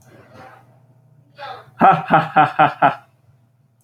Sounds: Laughter